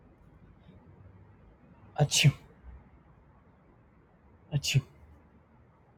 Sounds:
Sneeze